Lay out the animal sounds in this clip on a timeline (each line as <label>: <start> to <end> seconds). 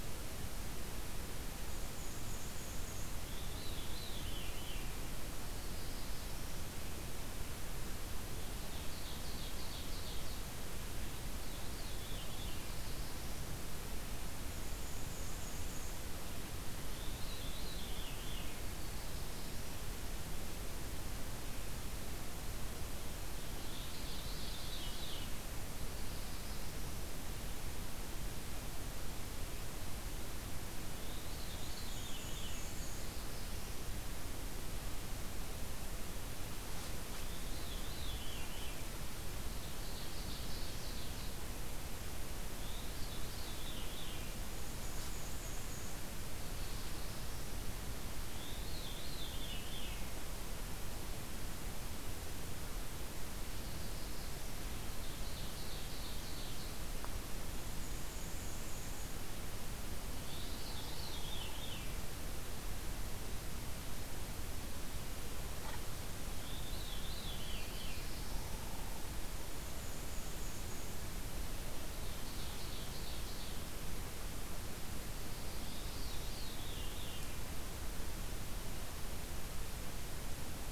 Black-and-white Warbler (Mniotilta varia): 1.4 to 3.4 seconds
Veery (Catharus fuscescens): 3.2 to 5.1 seconds
Black-throated Blue Warbler (Setophaga caerulescens): 5.3 to 6.8 seconds
Ovenbird (Seiurus aurocapilla): 8.5 to 10.5 seconds
Veery (Catharus fuscescens): 11.1 to 12.7 seconds
Black-throated Blue Warbler (Setophaga caerulescens): 12.2 to 13.6 seconds
Black-and-white Warbler (Mniotilta varia): 14.3 to 16.3 seconds
Veery (Catharus fuscescens): 16.6 to 18.7 seconds
Black-throated Blue Warbler (Setophaga caerulescens): 18.5 to 20.1 seconds
Ovenbird (Seiurus aurocapilla): 23.2 to 25.4 seconds
Black-throated Blue Warbler (Setophaga caerulescens): 25.5 to 27.2 seconds
Veery (Catharus fuscescens): 30.8 to 32.7 seconds
Black-and-white Warbler (Mniotilta varia): 31.3 to 33.3 seconds
Black-throated Blue Warbler (Setophaga caerulescens): 32.4 to 34.1 seconds
Veery (Catharus fuscescens): 36.9 to 38.9 seconds
Ovenbird (Seiurus aurocapilla): 39.3 to 41.5 seconds
Veery (Catharus fuscescens): 42.5 to 44.4 seconds
Black-and-white Warbler (Mniotilta varia): 44.3 to 46.2 seconds
Black-throated Blue Warbler (Setophaga caerulescens): 46.1 to 47.9 seconds
Veery (Catharus fuscescens): 48.2 to 50.2 seconds
Black-throated Blue Warbler (Setophaga caerulescens): 53.3 to 54.8 seconds
Ovenbird (Seiurus aurocapilla): 54.6 to 56.9 seconds
Black-and-white Warbler (Mniotilta varia): 57.6 to 59.3 seconds
Veery (Catharus fuscescens): 60.0 to 62.1 seconds
Downy Woodpecker (Dryobates pubescens): 60.6 to 62.2 seconds
Veery (Catharus fuscescens): 66.1 to 68.1 seconds
Black-throated Blue Warbler (Setophaga caerulescens): 66.9 to 68.8 seconds
Downy Woodpecker (Dryobates pubescens): 68.1 to 69.6 seconds
Black-and-white Warbler (Mniotilta varia): 69.3 to 71.1 seconds
Ovenbird (Seiurus aurocapilla): 71.9 to 73.8 seconds
Veery (Catharus fuscescens): 75.4 to 77.6 seconds